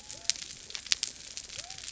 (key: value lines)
label: biophony
recorder: SoundTrap 300